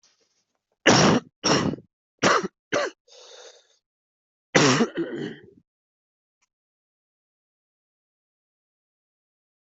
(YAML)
expert_labels:
- quality: good
  cough_type: wet
  dyspnea: false
  wheezing: false
  stridor: false
  choking: false
  congestion: false
  nothing: true
  diagnosis: lower respiratory tract infection
  severity: mild